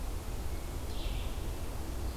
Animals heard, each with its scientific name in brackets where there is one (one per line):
Red-eyed Vireo (Vireo olivaceus)